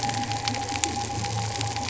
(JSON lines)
{"label": "anthrophony, boat engine", "recorder": "SoundTrap 300"}